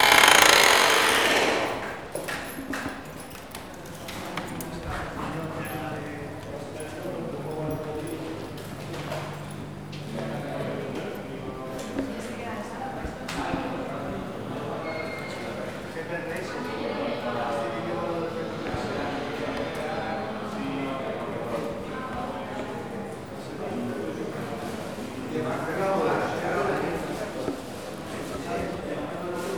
does a door open?
yes